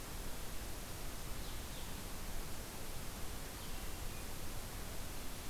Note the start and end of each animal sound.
0.0s-4.0s: Blue-headed Vireo (Vireo solitarius)

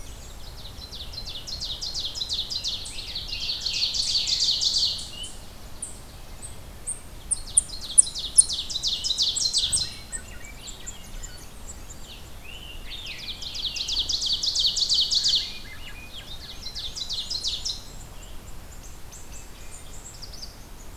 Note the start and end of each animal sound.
0.0s-5.2s: Ovenbird (Seiurus aurocapilla)
2.7s-12.0s: unknown mammal
2.8s-5.4s: Scarlet Tanager (Piranga olivacea)
7.2s-10.1s: Ovenbird (Seiurus aurocapilla)
9.4s-12.3s: Swainson's Thrush (Catharus ustulatus)
12.3s-13.4s: Scarlet Tanager (Piranga olivacea)
12.7s-15.5s: Ovenbird (Seiurus aurocapilla)
15.2s-17.8s: Swainson's Thrush (Catharus ustulatus)
16.1s-18.0s: Ovenbird (Seiurus aurocapilla)
16.8s-20.5s: unknown mammal
19.2s-20.0s: Wood Thrush (Hylocichla mustelina)

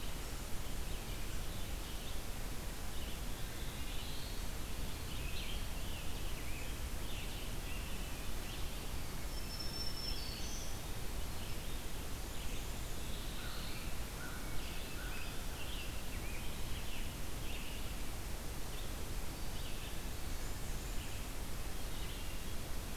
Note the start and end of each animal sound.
0.9s-23.0s: Red-eyed Vireo (Vireo olivaceus)
3.2s-4.6s: Black-throated Blue Warbler (Setophaga caerulescens)
5.7s-8.4s: Rose-breasted Grosbeak (Pheucticus ludovicianus)
9.1s-11.1s: Black-throated Green Warbler (Setophaga virens)
12.5s-13.9s: Black-throated Blue Warbler (Setophaga caerulescens)
13.4s-15.6s: American Crow (Corvus brachyrhynchos)
15.1s-17.8s: Rose-breasted Grosbeak (Pheucticus ludovicianus)
20.0s-21.4s: Blackburnian Warbler (Setophaga fusca)

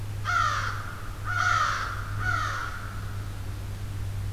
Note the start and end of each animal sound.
0.0s-3.3s: Blackburnian Warbler (Setophaga fusca)

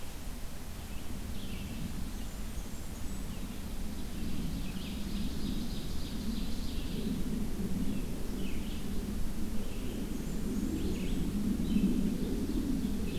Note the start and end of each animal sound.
0.0s-13.2s: Red-eyed Vireo (Vireo olivaceus)
1.9s-3.5s: Blackburnian Warbler (Setophaga fusca)
4.7s-7.0s: Ovenbird (Seiurus aurocapilla)
9.8s-11.2s: Blackburnian Warbler (Setophaga fusca)

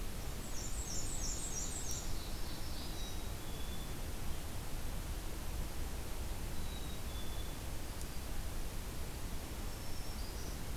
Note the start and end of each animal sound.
0.3s-2.1s: Black-and-white Warbler (Mniotilta varia)
1.4s-3.1s: Ovenbird (Seiurus aurocapilla)
2.1s-3.2s: Black-throated Green Warbler (Setophaga virens)
2.9s-4.1s: Black-capped Chickadee (Poecile atricapillus)
6.5s-7.6s: Black-capped Chickadee (Poecile atricapillus)
9.5s-10.5s: Black-throated Green Warbler (Setophaga virens)

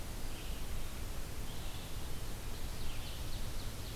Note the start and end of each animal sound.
0.0s-4.0s: Red-eyed Vireo (Vireo olivaceus)
2.6s-4.0s: Ovenbird (Seiurus aurocapilla)

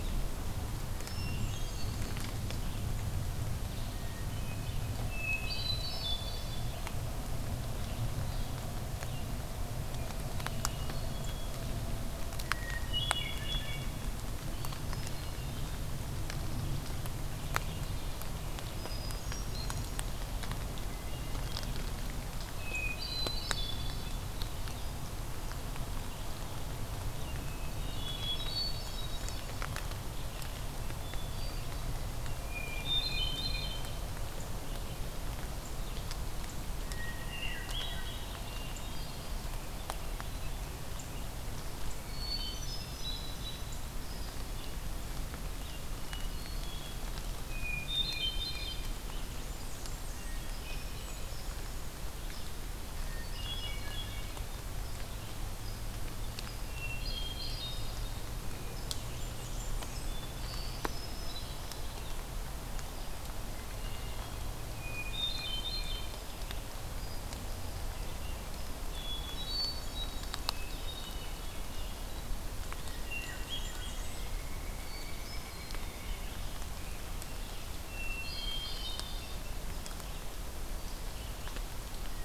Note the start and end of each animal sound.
0.7s-2.4s: Hermit Thrush (Catharus guttatus)
3.8s-7.0s: Hermit Thrush (Catharus guttatus)
10.4s-11.4s: Hermit Thrush (Catharus guttatus)
12.3s-14.0s: Hermit Thrush (Catharus guttatus)
14.5s-15.9s: Hermit Thrush (Catharus guttatus)
18.6s-20.2s: Hermit Thrush (Catharus guttatus)
20.8s-21.8s: Hermit Thrush (Catharus guttatus)
22.4s-24.1s: Hermit Thrush (Catharus guttatus)
27.2s-29.7s: Hermit Thrush (Catharus guttatus)
30.9s-32.0s: Hermit Thrush (Catharus guttatus)
32.4s-34.0s: Hermit Thrush (Catharus guttatus)
36.8s-39.6s: Hermit Thrush (Catharus guttatus)
41.9s-43.9s: Hermit Thrush (Catharus guttatus)
45.8s-47.1s: Hermit Thrush (Catharus guttatus)
47.4s-48.9s: Hermit Thrush (Catharus guttatus)
49.2s-50.4s: Blackburnian Warbler (Setophaga fusca)
50.0s-51.9s: Hermit Thrush (Catharus guttatus)
53.1s-54.5s: Hermit Thrush (Catharus guttatus)
56.5s-58.2s: Hermit Thrush (Catharus guttatus)
58.9s-60.4s: Bay-breasted Warbler (Setophaga castanea)
60.1s-61.9s: Hermit Thrush (Catharus guttatus)
63.6s-66.3s: Hermit Thrush (Catharus guttatus)
68.6s-72.0s: Hermit Thrush (Catharus guttatus)
72.7s-74.1s: Hermit Thrush (Catharus guttatus)
73.1s-74.2s: Bay-breasted Warbler (Setophaga castanea)
73.8s-76.5s: Pileated Woodpecker (Dryocopus pileatus)
74.8s-75.9s: Hermit Thrush (Catharus guttatus)
77.7s-79.4s: Hermit Thrush (Catharus guttatus)

